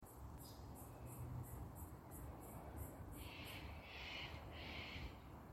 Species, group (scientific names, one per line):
Yoyetta celis
Cicadidae